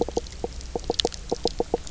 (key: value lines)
label: biophony, knock croak
recorder: SoundTrap 300